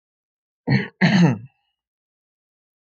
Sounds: Throat clearing